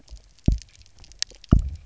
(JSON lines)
{"label": "biophony, double pulse", "recorder": "SoundTrap 300"}